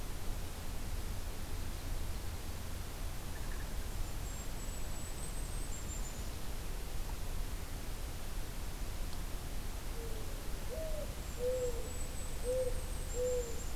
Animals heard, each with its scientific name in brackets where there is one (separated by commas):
Golden-crowned Kinglet (Regulus satrapa), Mourning Dove (Zenaida macroura)